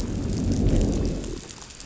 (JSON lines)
{"label": "biophony, growl", "recorder": "SoundTrap 500"}